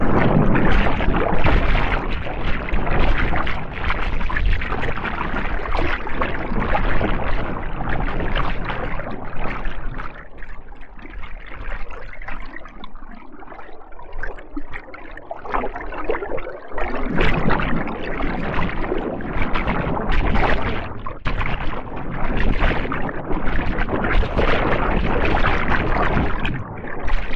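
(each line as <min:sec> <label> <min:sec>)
0:00.0 Waves crashing repeatedly in a distorted manner. 0:10.3
0:10.3 Water gurgling repeatedly in a distorted way. 0:15.5
0:15.5 Waves crashing repeatedly in a distorted manner. 0:27.4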